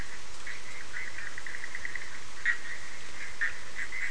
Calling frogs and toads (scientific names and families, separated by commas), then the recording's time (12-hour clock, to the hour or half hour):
Boana bischoffi (Hylidae)
~11pm